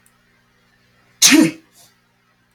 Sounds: Sneeze